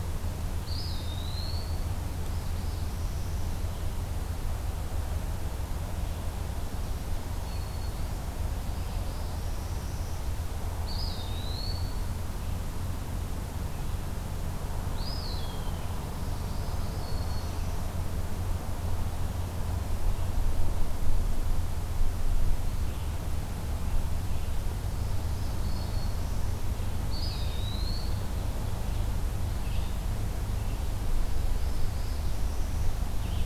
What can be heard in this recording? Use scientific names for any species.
Contopus virens, Setophaga americana, Setophaga virens, Vireo olivaceus